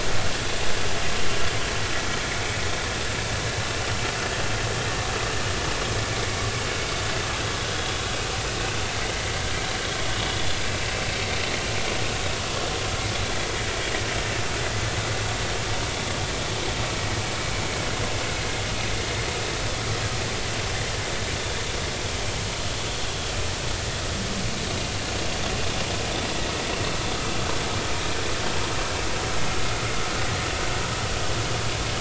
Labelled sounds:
10.7	10.9	vessel noise, 2.6 to 2.8 kHz

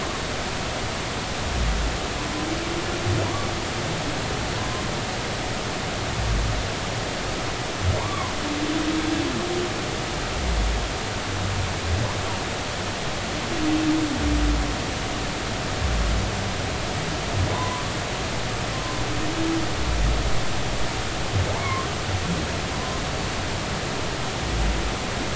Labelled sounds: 4.6	4.8	humpback whale, 0.96 to 1.1 kHz
8.0	8.3	humpback whale, 0.86 to 1.2 kHz
17.5	17.8	humpback whale, 0.93 to 1.1 kHz
21.5	21.9	humpback whale, 0.80 to 1.2 kHz
22.7	23.0	humpback whale, 0.93 to 1.1 kHz

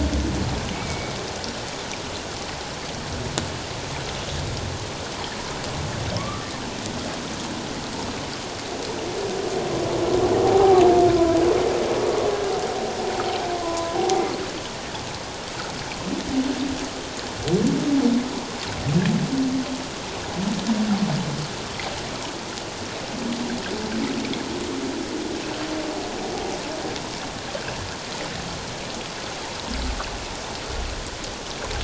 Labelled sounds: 0.7	1.1	humpback whale, 2.2 to 2.4 kHz
6.2	6.5	humpback whale, 1.0 to 1.4 kHz
10.4	10.8	humpback whale, 0.78 to 0.84 kHz
13.6	14.2	humpback whale, 0.78 to 1.1 kHz

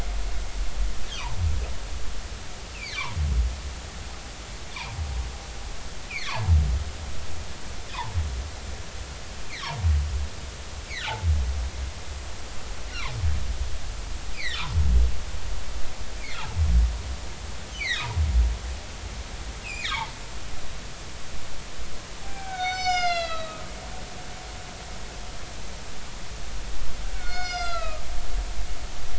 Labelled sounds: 2.7	3.1	humpback whale, 1.9 to 2.8 kHz
6.1	6.6	humpback whale, 0.83 to 2.7 kHz
14.3	14.7	humpback whale, 1.7 to 4.8 kHz
17.8	18.1	humpback whale, 1.6 to 4.8 kHz
19.6	20.1	humpback whale, 0.80 to 4.1 kHz
22.2	23.7	humpback whale, 0.80 to 7.3 kHz
27.1	28.0	humpback whale, 1.2 to 5.9 kHz

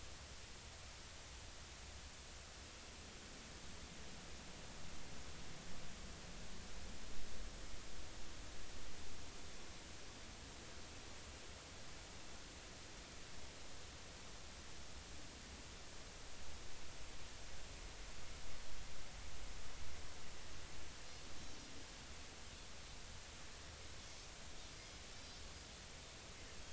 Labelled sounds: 25.2	25.4	Pacific white-sided dolphin, 4.6 to 4.9 kHz

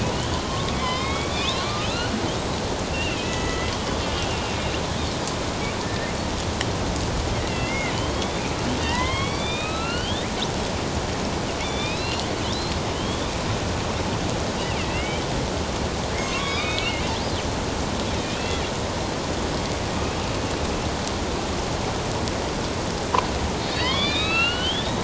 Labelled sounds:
0.4	2.1	killer whale, northern resident, A clan, AB subclan, 0.97 to 4.4 kHz
2.9	3.7	killer whale, northern resident, A clan, AB subclan, 1.3 to 2.9 kHz
5.8	6.1	killer whale, northern resident, A clan, AB subclan, 1.7 to 1.9 kHz
7.5	8.4	killer whale, northern resident, A clan, AB subclan, 1.9 to 3.7 kHz
8.8	10.3	killer whale, northern resident, A clan, AB subclan, 0.91 to 4.7 kHz
11.6	13.3	killer whale, northern resident, A clan, AB subclan, 2.1 to 4.6 kHz
14.8	15.2	killer whale, northern resident, A clan, AB subclan, 1.9 to 2.9 kHz
16.1	17.0	killer whale, northern resident, A clan, AB subclan, 1.0 to 3.9 kHz
18.1	18.6	killer whale, northern resident, A clan, AB subclan, 2.4 to 2.8 kHz
23.6	25.0	killer whale, northern resident, A clan, AB subclan, 0.94 to 5.2 kHz

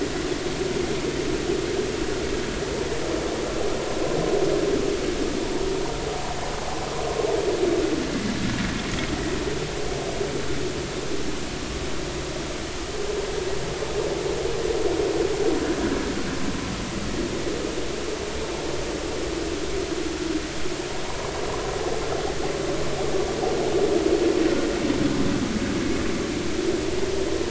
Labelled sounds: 21.0	21.3	vessel noise, 0.90 to 1.2 kHz

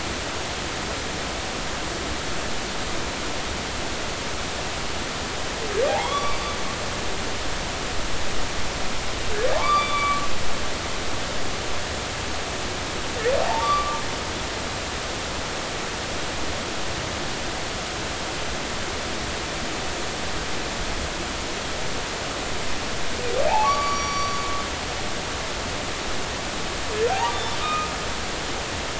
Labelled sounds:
5.9	6.5	humpback whale, 0.80 to 4.7 kHz
9.6	10.2	humpback whale, 0.80 to 4.8 kHz
13.4	14.0	humpback whale, 0.80 to 1.2 kHz
23.6	24.3	humpback whale, 1.1 to 5.8 kHz
27.1	27.9	humpback whale, 0.80 to 3.6 kHz

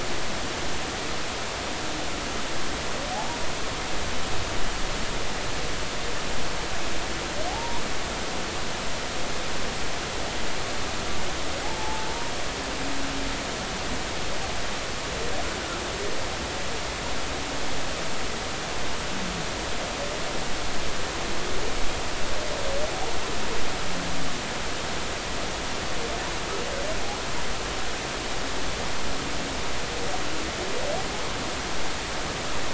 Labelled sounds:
3.1	3.4	humpback whale, 0.80 to 0.99 kHz
7.5	7.8	humpback whale, 0.80 to 1.1 kHz
11.6	12.1	humpback whale, 0.80 to 0.96 kHz

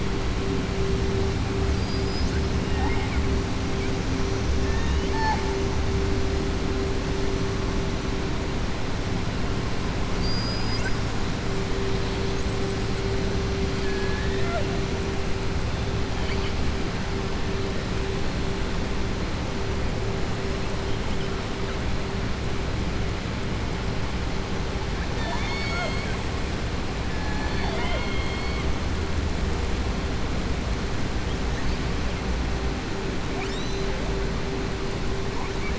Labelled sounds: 10.1	11.1	killer whale, southern resident, 4.4 to 7.9 kHz
25.1	26.2	killer whale, southern resident, 0.65 to 7.8 kHz

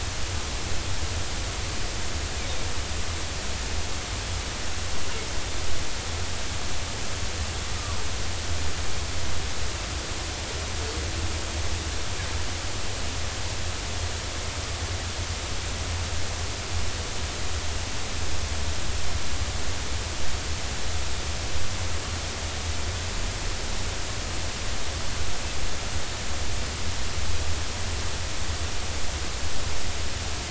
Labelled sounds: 7.8	8.0	humpback whale, 0.90 to 1.3 kHz

